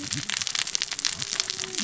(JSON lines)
{"label": "biophony, cascading saw", "recorder": "SoundTrap 600 or HydroMoth"}